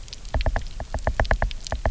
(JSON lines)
{"label": "biophony, knock", "recorder": "SoundTrap 300"}